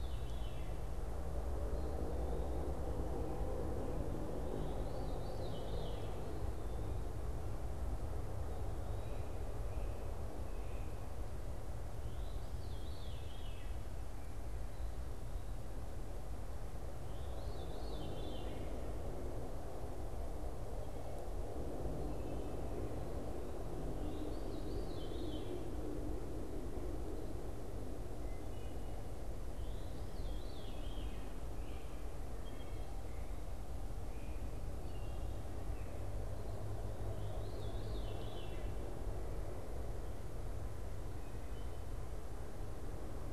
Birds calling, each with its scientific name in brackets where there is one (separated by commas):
Veery (Catharus fuscescens), Great Crested Flycatcher (Myiarchus crinitus), Wood Thrush (Hylocichla mustelina)